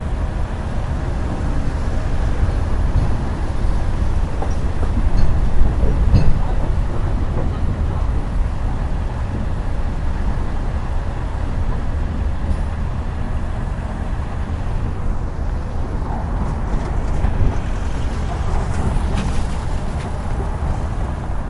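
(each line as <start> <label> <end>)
0.0 Road traffic near construction. 21.5
4.3 Hammering noise from construction mixed with road traffic sounds in the background. 7.5
16.6 A disc tray is being emptied while street noises are heard in the background. 20.4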